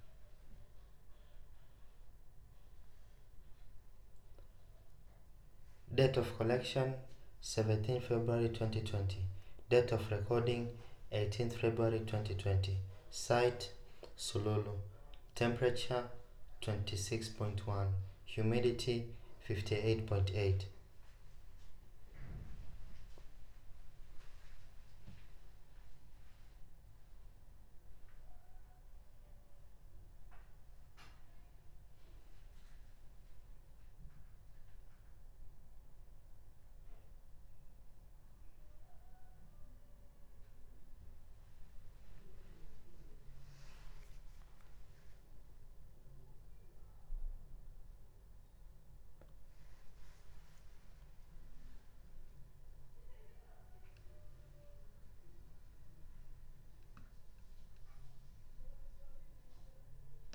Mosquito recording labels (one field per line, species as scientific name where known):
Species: no mosquito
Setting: cup